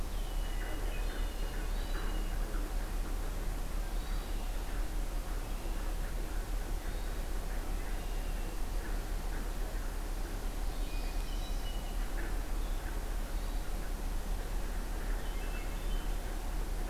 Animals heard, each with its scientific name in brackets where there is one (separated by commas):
Hermit Thrush (Catharus guttatus), Northern Parula (Setophaga americana), Red-winged Blackbird (Agelaius phoeniceus)